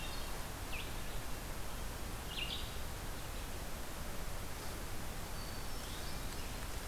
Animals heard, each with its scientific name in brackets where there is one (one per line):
Hermit Thrush (Catharus guttatus)
Red-eyed Vireo (Vireo olivaceus)